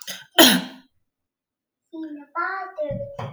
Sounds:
Cough